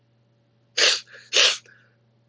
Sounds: Sniff